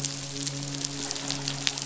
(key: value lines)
label: biophony, midshipman
recorder: SoundTrap 500